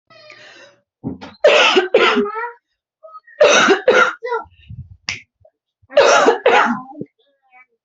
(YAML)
expert_labels:
- quality: ok
  cough_type: dry
  dyspnea: false
  wheezing: false
  stridor: false
  choking: false
  congestion: false
  nothing: true
  diagnosis: COVID-19
  severity: mild
age: 40
gender: female
respiratory_condition: true
fever_muscle_pain: false
status: symptomatic